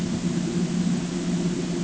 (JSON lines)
{"label": "ambient", "recorder": "HydroMoth"}